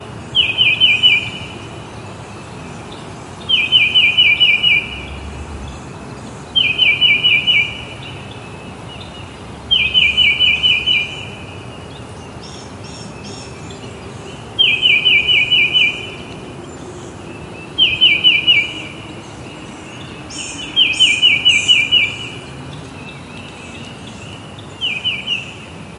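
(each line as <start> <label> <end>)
0.3 A bird chirps repeatedly. 1.3
1.4 Background forest noises. 3.4
3.5 A bird chirps repeatedly. 4.9
5.0 Background forest noises. 6.4
6.5 A bird chirps repeatedly. 7.8
7.8 Background forest noises. 9.6
9.7 A bird chirps repeatedly. 11.1
11.2 Background forest noises. 14.4
14.5 A bird chirps repeatedly. 16.0
16.0 Background forest noises. 17.7
17.8 A bird chirps repeatedly. 18.7
18.8 Background forest noises. 20.7
20.8 A bird chirps repeatedly. 22.2
22.3 Background forest noises. 24.7
24.8 A bird chirps repeatedly. 25.5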